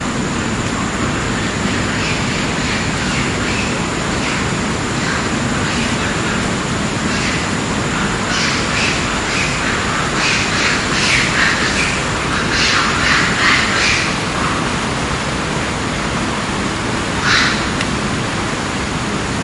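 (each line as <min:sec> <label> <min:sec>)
0:00.0 Ambient jungle sounds. 0:19.4
0:08.3 Loud birds calling in a jungle. 0:14.1
0:17.2 A loud bird calling in a jungle. 0:17.9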